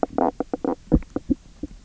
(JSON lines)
{"label": "biophony, knock croak", "recorder": "SoundTrap 300"}